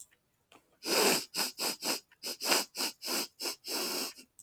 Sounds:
Sniff